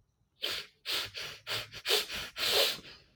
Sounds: Sniff